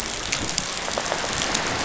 {"label": "biophony, rattle response", "recorder": "SoundTrap 500"}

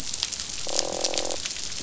{"label": "biophony, croak", "recorder": "SoundTrap 500"}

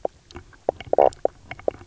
{"label": "biophony, knock croak", "recorder": "SoundTrap 300"}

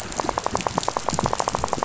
{"label": "biophony, rattle", "recorder": "SoundTrap 500"}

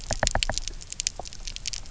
{"label": "biophony, knock", "recorder": "SoundTrap 300"}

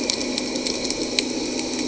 {"label": "anthrophony, boat engine", "recorder": "HydroMoth"}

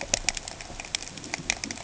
{"label": "ambient", "recorder": "HydroMoth"}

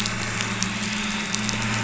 {"label": "anthrophony, boat engine", "recorder": "SoundTrap 500"}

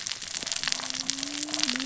{"label": "biophony, cascading saw", "recorder": "SoundTrap 600 or HydroMoth"}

